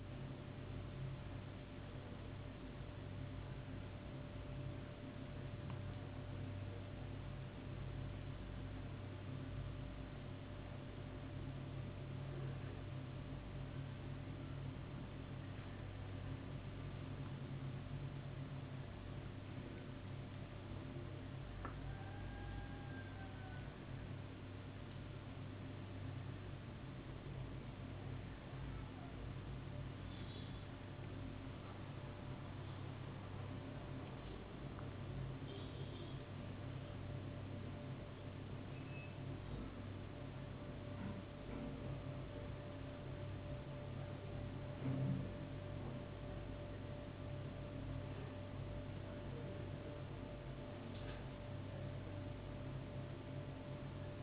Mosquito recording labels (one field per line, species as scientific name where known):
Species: no mosquito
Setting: insect culture